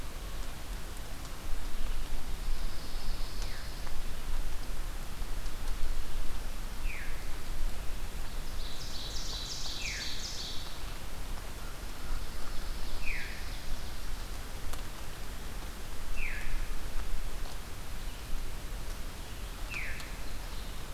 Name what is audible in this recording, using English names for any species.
Pine Warbler, Veery, Ovenbird